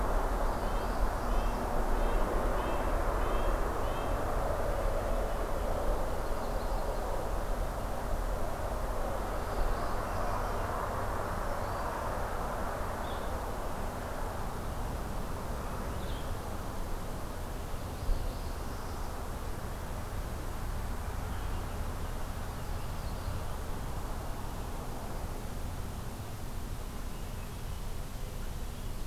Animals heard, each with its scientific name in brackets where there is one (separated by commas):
Northern Parula (Setophaga americana), Blue-headed Vireo (Vireo solitarius), Hermit Thrush (Catharus guttatus), Yellow-rumped Warbler (Setophaga coronata), Black-throated Green Warbler (Setophaga virens), Red-breasted Nuthatch (Sitta canadensis)